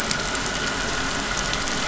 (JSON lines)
{"label": "anthrophony, boat engine", "recorder": "SoundTrap 500"}